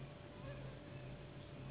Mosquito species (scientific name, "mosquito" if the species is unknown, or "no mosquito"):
Anopheles gambiae s.s.